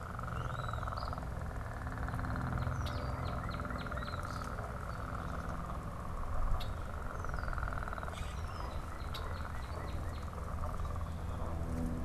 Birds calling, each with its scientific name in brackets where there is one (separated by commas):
Northern Cardinal (Cardinalis cardinalis), Common Grackle (Quiscalus quiscula), unidentified bird, Red-winged Blackbird (Agelaius phoeniceus), Eastern Phoebe (Sayornis phoebe)